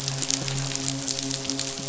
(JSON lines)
{"label": "biophony, midshipman", "recorder": "SoundTrap 500"}